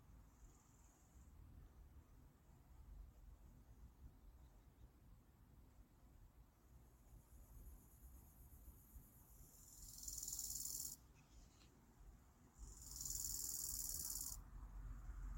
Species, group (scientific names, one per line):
Chorthippus biguttulus
Orthoptera